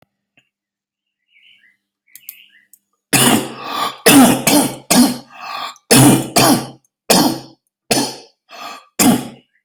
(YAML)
expert_labels:
- quality: poor
  cough_type: unknown
  dyspnea: false
  wheezing: true
  stridor: false
  choking: false
  congestion: false
  nothing: true
  diagnosis: COVID-19
  severity: severe
age: 51
gender: male
respiratory_condition: true
fever_muscle_pain: true
status: symptomatic